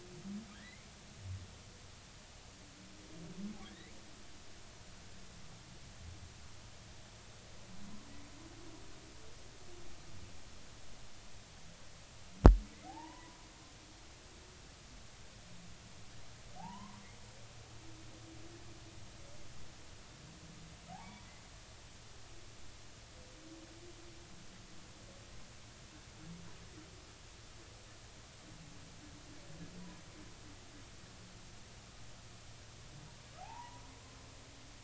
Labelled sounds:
0.5	0.9	humpback whale, 1.5 to 2.4 kHz
3.7	3.9	humpback whale, 1.6 to 2.4 kHz
13.8	14.4	humpback whale, 0.80 to 1.1 kHz
16.6	17.0	humpback whale, 0.80 to 1.1 kHz
20.9	21.3	humpback whale, 0.80 to 1.0 kHz
33.4	33.8	humpback whale, 0.80 to 1.1 kHz

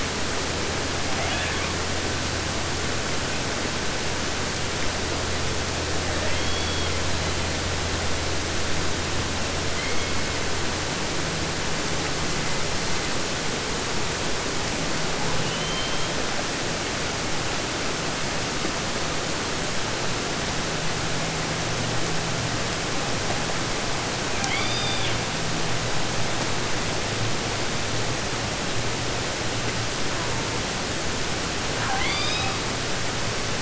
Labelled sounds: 1.1	1.9	killer whale, southern resident, 0.50 to 4.1 kHz
6.0	7.0	killer whale, southern resident, J pod, call S44, 0.50 to 7.1 kHz
7.0	7.7	killer whale, 1.0 to 4.8 kHz
9.7	10.5	killer whale, southern resident, 1.3 to 4.8 kHz
15.1	16.5	killer whale, southern resident, 0.50 to 5.7 kHz
24.1	25.3	killer whale, southern resident, J pod, call S44, 0.50 to 7.2 kHz
30.0	30.7	killer whale, southern resident, J pod, call S04, 0.32 to 2.6 kHz
31.7	32.7	killer whale, southern resident, 0.50 to 6.7 kHz

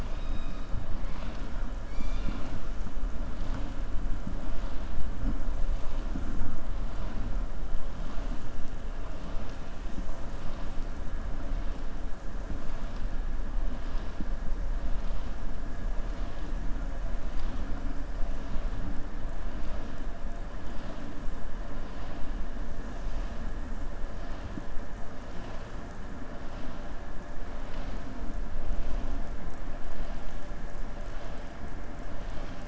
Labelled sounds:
0.0	0.6	killer whale, southern resident, 2.4 to 5.2 kHz

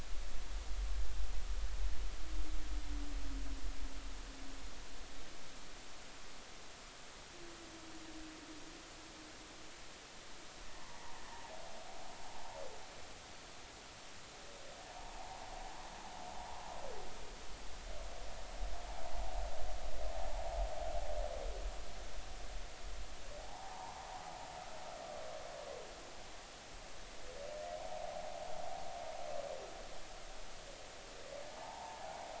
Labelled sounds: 10.8	11.2	humpback whale, 0.83 to 1.1 kHz
14.9	15.9	humpback whale, 0.80 to 1.2 kHz
23.4	24.1	humpback whale, 0.80 to 1.1 kHz
31.5	32.3	humpback whale, 0.80 to 1.1 kHz

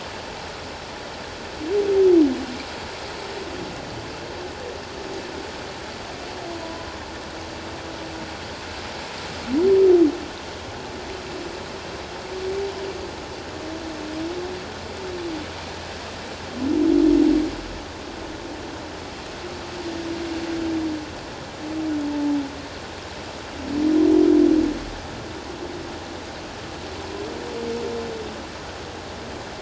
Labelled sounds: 6.6	6.9	humpback whale, 0.94 to 1.0 kHz
22.1	22.4	humpback whale, 0.84 to 0.97 kHz

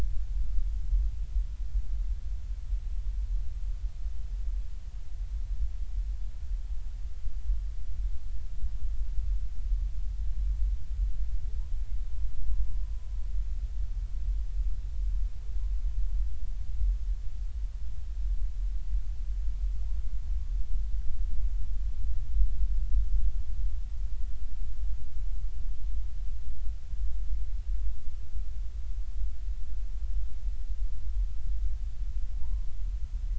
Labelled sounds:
32.3	32.7	humpback whale, 0.80 to 1.1 kHz

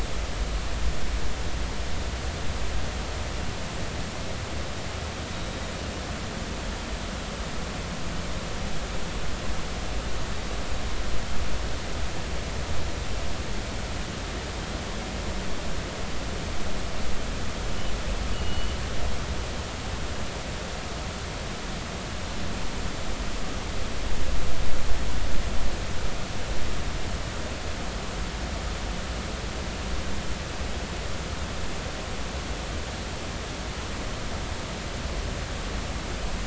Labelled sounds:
18.3	18.8	killer whale, northern resident, G clan, 2.8 to 3.0 kHz

